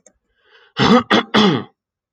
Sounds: Throat clearing